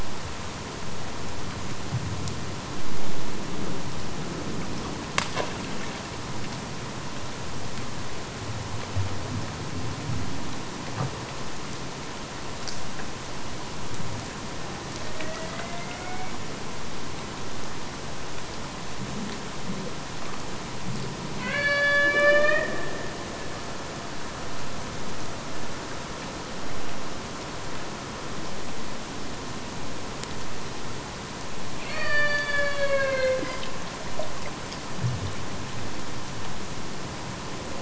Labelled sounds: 14.8	16.6	killer whale, Bigg's (transient), AT1 transient, 0.49 to 2.3 kHz
21.3	23.0	killer whale, Bigg's (transient), AT1 transient, 0.30 to 6.2 kHz
31.7	33.9	killer whale, Bigg's (transient), AT1 transient, 0.40 to 4.8 kHz

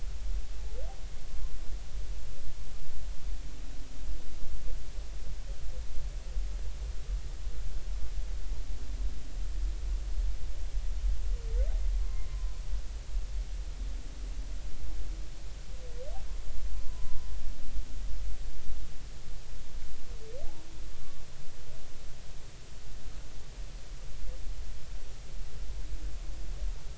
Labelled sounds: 1.2	1.5	humpback whale, 0.99 to 1.1 kHz
12.0	12.6	humpback whale, 0.99 to 1.1 kHz
16.8	17.3	humpback whale, 0.93 to 1.1 kHz

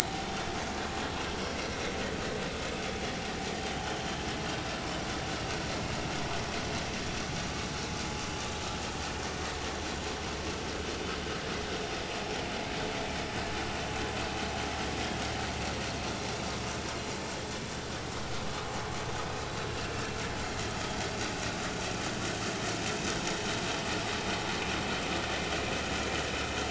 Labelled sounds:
0.1	0.5	vessel noise, 1.3 to 1.5 kHz
1.6	1.9	vessel noise, 5.7 to 5.9 kHz
4.0	4.2	vessel noise, 3.0 to 3.2 kHz
19.3	19.5	vessel noise, 3.8 to 4.0 kHz

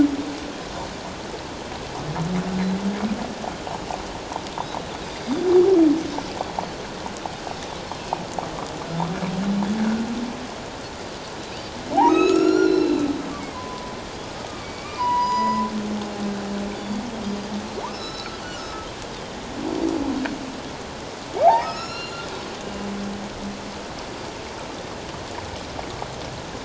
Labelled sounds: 9.8	10.0	Pacific white-sided dolphin, 1.4 to 1.7 kHz
12.1	13.1	humpback whale, 1.2 to 7.3 kHz
13.5	15.7	humpback whale, 0.88 to 7.9 kHz
16.7	17.5	Pacific white-sided dolphin, 3.3 to 4.9 kHz
17.9	18.7	humpback whale, 1.2 to 5.5 kHz
18.4	18.7	Pacific white-sided dolphin, 5.6 to 5.9 kHz
21.6	22.3	humpback whale, 1.2 to 7.0 kHz

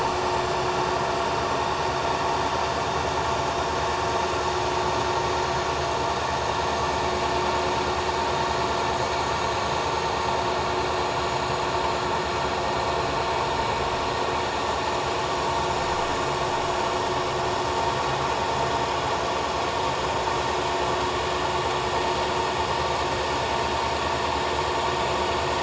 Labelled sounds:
11.2	11.6	vessel noise, 6.8 to 7.0 kHz

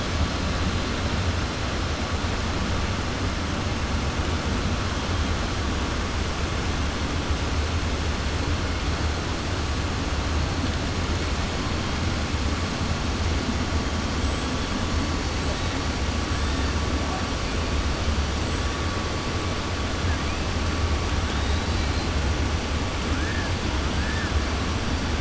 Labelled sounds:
21.3	22.1	killer whale, 3.6 to 4.7 kHz

